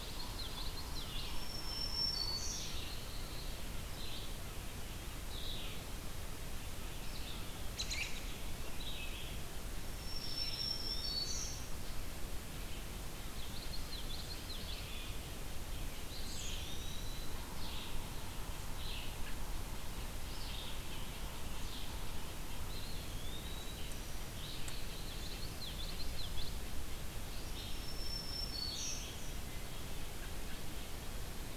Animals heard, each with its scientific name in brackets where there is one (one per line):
Red-eyed Vireo (Vireo olivaceus)
Black-capped Chickadee (Poecile atricapillus)
Eastern Wood-Pewee (Contopus virens)
American Robin (Turdus migratorius)
Common Yellowthroat (Geothlypis trichas)
Black-throated Green Warbler (Setophaga virens)